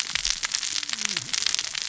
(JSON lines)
{"label": "biophony, cascading saw", "recorder": "SoundTrap 600 or HydroMoth"}